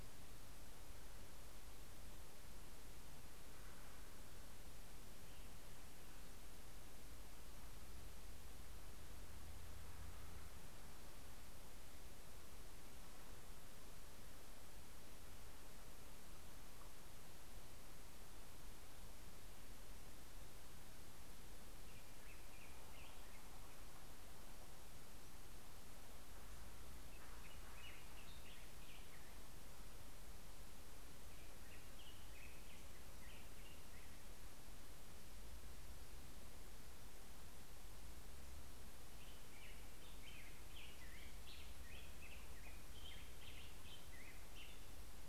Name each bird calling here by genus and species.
Pheucticus melanocephalus